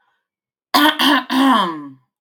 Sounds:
Throat clearing